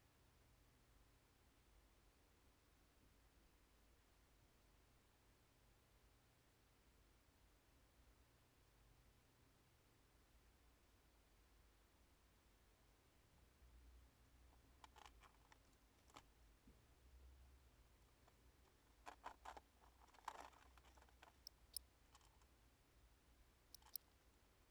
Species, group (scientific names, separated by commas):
Gryllus bimaculatus, Orthoptera